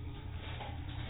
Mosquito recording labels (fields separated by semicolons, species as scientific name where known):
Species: mosquito; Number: one; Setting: cup